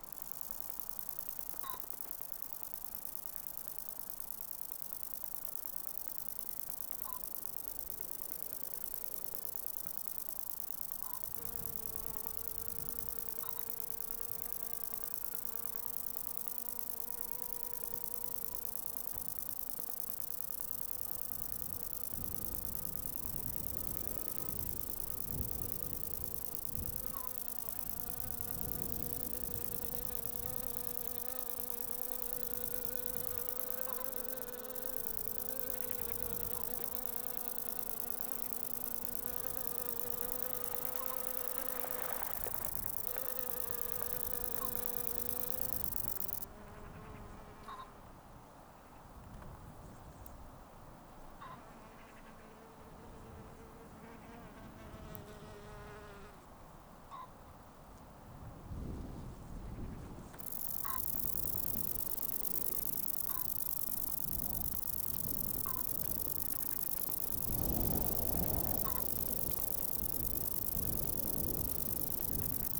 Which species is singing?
Conocephalus fuscus